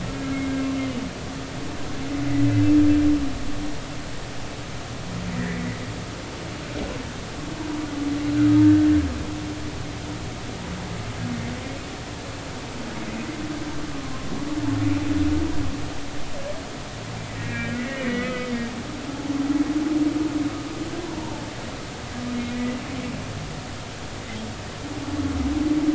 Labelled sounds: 0.1	0.6	humpback whale, 1.6 to 2.3 kHz
5.4	5.8	humpback whale, 1.6 to 2.1 kHz
17.4	18.5	humpback whale, 1.2 to 2.6 kHz
21.0	21.5	humpback whale, 0.83 to 1.1 kHz
22.5	22.8	humpback whale, 1.9 to 2.0 kHz

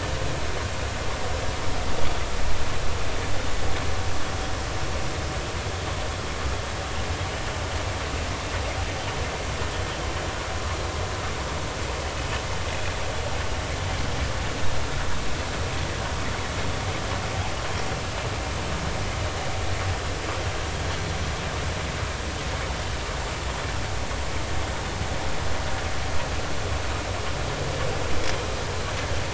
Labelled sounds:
2.0	2.2	humpback whale, 3.3 to 3.4 kHz

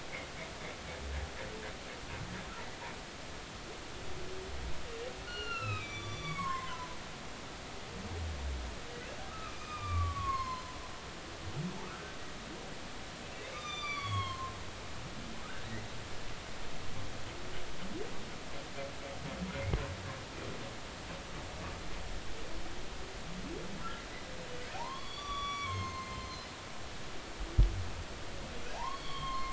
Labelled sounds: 5.2	6.9	humpback whale, 0.93 to 6.4 kHz
9.3	10.8	humpback whale, 0.96 to 5.4 kHz
11.8	12.2	humpback whale, 1.1 to 1.6 kHz
13.5	15.7	humpback whale, 0.99 to 7.3 kHz
24.7	26.5	humpback whale, 0.80 to 6.5 kHz
28.7	29.4	humpback whale, 0.80 to 4.5 kHz

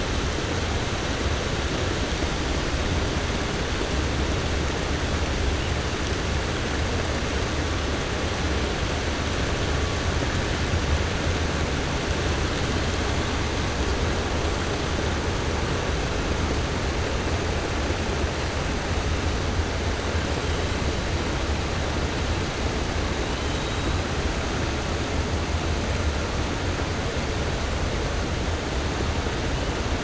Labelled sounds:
23.3	23.8	killer whale, 2.9 to 4.1 kHz

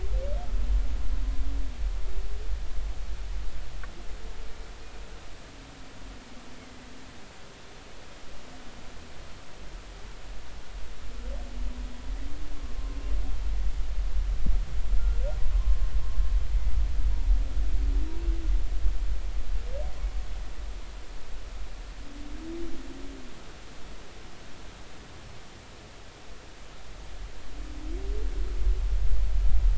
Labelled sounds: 15.5	15.9	humpback whale, 0.99 to 1.1 kHz

